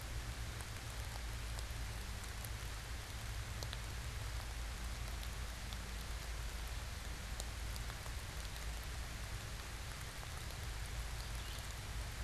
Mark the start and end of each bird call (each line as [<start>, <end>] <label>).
[11.04, 11.84] Red-eyed Vireo (Vireo olivaceus)